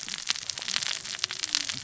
{"label": "biophony, cascading saw", "recorder": "SoundTrap 600 or HydroMoth"}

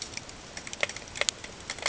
{"label": "ambient", "recorder": "HydroMoth"}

